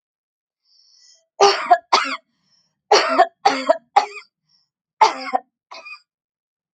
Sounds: Cough